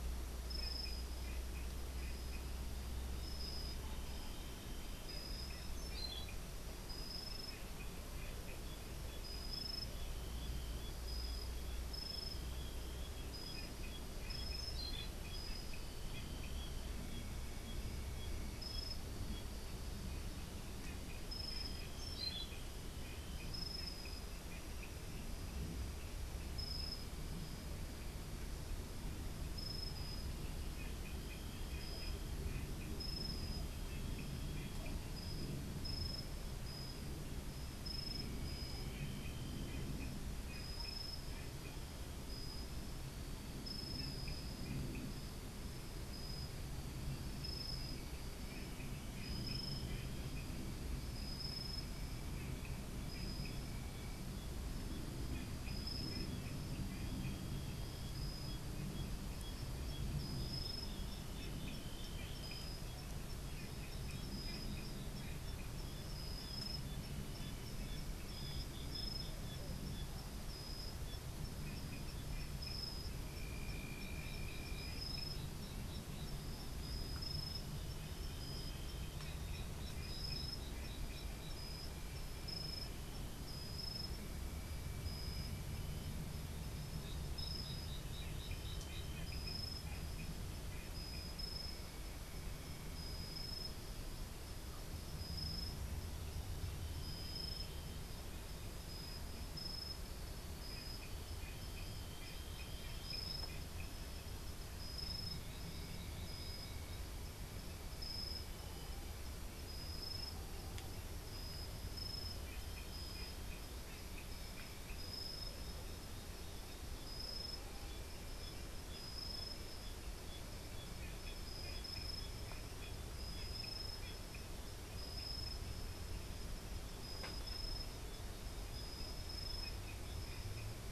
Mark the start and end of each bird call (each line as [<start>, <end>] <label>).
[5.49, 6.49] Orange-billed Nightingale-Thrush (Catharus aurantiirostris)
[14.19, 15.19] Orange-billed Nightingale-Thrush (Catharus aurantiirostris)
[21.69, 22.59] Orange-billed Nightingale-Thrush (Catharus aurantiirostris)